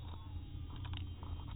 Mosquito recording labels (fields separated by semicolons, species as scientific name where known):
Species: mosquito; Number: one; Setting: cup